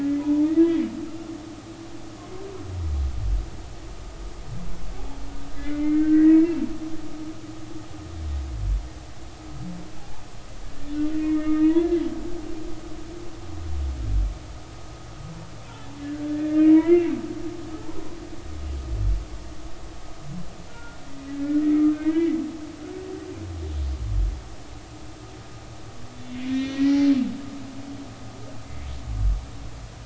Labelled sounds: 0.2	0.5	humpback whale, 0.83 to 1.0 kHz
5.5	6.6	humpback whale, 1.5 to 2.4 kHz
10.6	12.0	humpback whale, 0.93 to 3.5 kHz
16.3	17.1	humpback whale, 1.7 to 2.8 kHz
20.7	21.0	humpback whale, 1.3 to 1.5 kHz
21.3	22.4	humpback whale, 0.90 to 2.4 kHz
26.1	27.0	humpback whale, 1.8 to 3.8 kHz

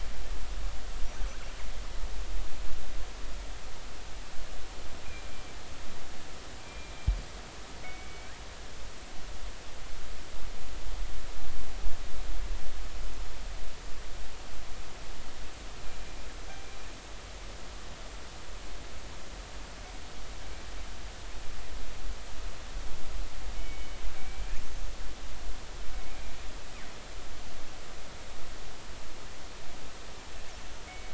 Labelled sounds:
5.0	5.3	killer whale, northern resident, G clan, 2.3 to 2.5 kHz
6.6	6.9	killer whale, northern resident, G clan, 2.3 to 2.4 kHz
7.8	8.3	killer whale, northern resident, G clan, 2.1 to 2.4 kHz
23.5	24.5	killer whale, northern resident, G clan, 2.2 to 2.4 kHz
30.9	31.1	killer whale, northern resident, G clan, 2.1 to 2.3 kHz

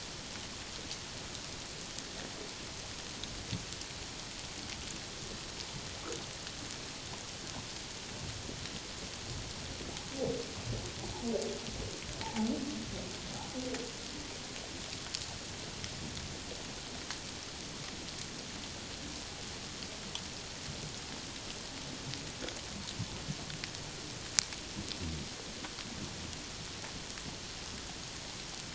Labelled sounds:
12.2	12.5	humpback whale, 0.78 to 1.0 kHz

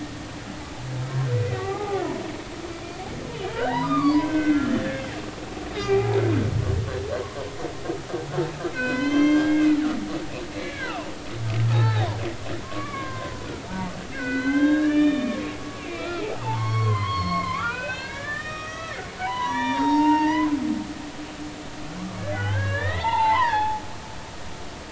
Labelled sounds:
1.3	2.0	humpback whale, 0.80 to 2.2 kHz
3.5	5.0	humpback whale, 0.80 to 5.0 kHz
5.8	6.2	humpback whale, 0.80 to 2.5 kHz
8.7	9.8	humpback whale, 0.96 to 6.4 kHz
10.6	11.1	humpback whale, 0.86 to 2.4 kHz
11.7	15.5	humpback whale, 0.80 to 4.2 kHz
15.9	20.6	humpback whale, 0.80 to 5.9 kHz
22.3	23.8	humpback whale, 0.80 to 4.1 kHz

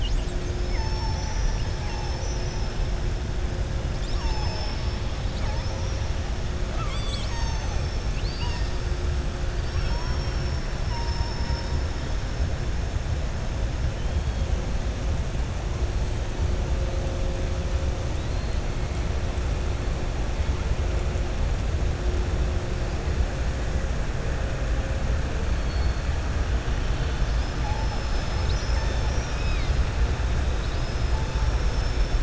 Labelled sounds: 0.6	1.4	killer whale, southern resident, 0.84 to 2.7 kHz
8.1	8.8	killer whale, southern resident, 0.97 to 6.7 kHz
9.6	11.8	killer whale, southern resident, 4.5 to 6.5 kHz
18.1	18.6	killer whale, southern resident, 3.6 to 4.4 kHz
31.3	32.2	killer whale, southern resident, 4.9 to 6.3 kHz

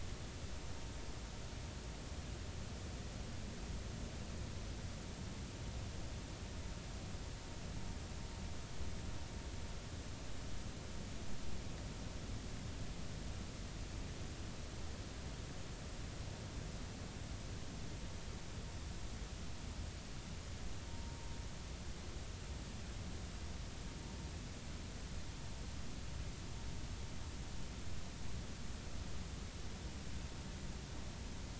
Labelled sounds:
20.9	21.2	vessel noise, 0.90 to 0.99 kHz

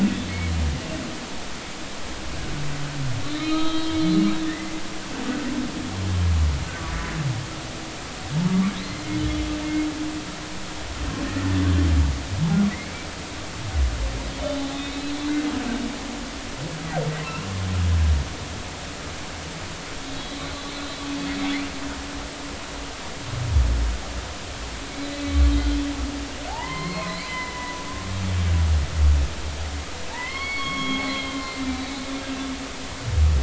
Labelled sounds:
0.3	0.5	humpback whale, 2.0 to 2.3 kHz
3.2	4.0	humpback whale, 1.2 to 4.2 kHz
4.4	4.7	humpback whale, 1.7 to 2.1 kHz
8.3	8.6	humpback whale, 0.83 to 0.96 kHz
14.7	15.4	humpback whale, 2.5 to 4.1 kHz
17.2	17.5	humpback whale, 2.6 to 2.8 kHz
20.1	20.5	humpback whale, 3.8 to 4.1 kHz
25.5	25.8	humpback whale, 3.1 to 4.1 kHz
26.5	27.9	humpback whale, 0.80 to 4.7 kHz
30.1	31.9	humpback whale, 0.83 to 5.5 kHz

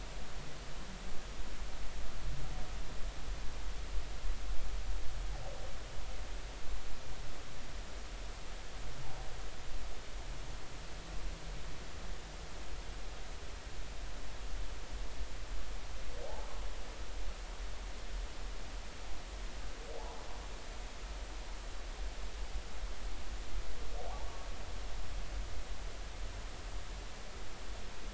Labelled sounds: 16.2	16.5	humpback whale, 0.80 to 0.96 kHz

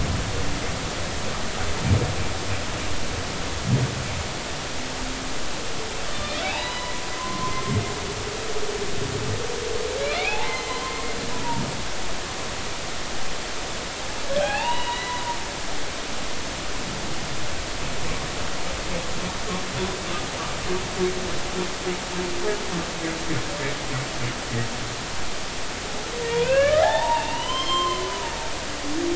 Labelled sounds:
6.1	7.6	humpback whale, 0.80 to 4.0 kHz
10.0	11.0	humpback whale, 0.80 to 4.4 kHz
14.4	15.2	humpback whale, 0.80 to 4.0 kHz
26.3	28.0	humpback whale, 0.80 to 5.4 kHz
28.3	29.1	humpback whale, 2.8 to 3.4 kHz

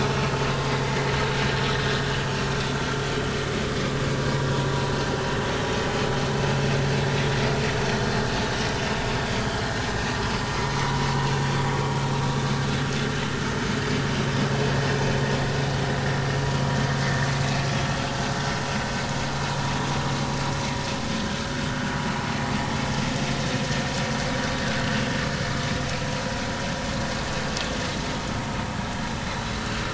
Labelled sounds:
0.1	0.3	vessel noise, 2.6 to 2.8 kHz

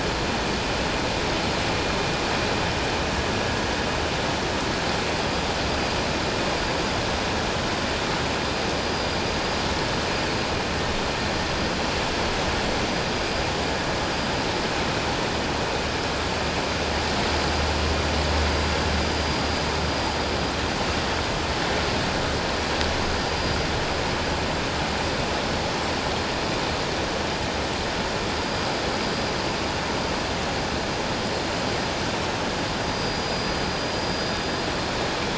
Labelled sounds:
8.9	9.2	vessel noise, 4.8 to 4.9 kHz
32.9	33.3	vessel noise, 4.6 to 4.9 kHz

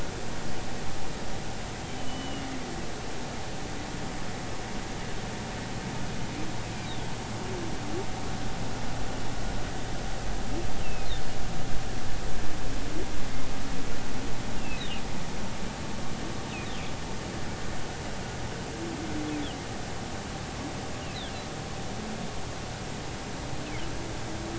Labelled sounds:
1.8	2.5	humpback whale, 2.8 to 3.2 kHz
10.8	11.1	humpback whale, 2.4 to 2.8 kHz
14.6	14.8	humpback whale, 2.4 to 2.8 kHz

